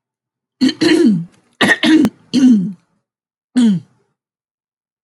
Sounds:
Throat clearing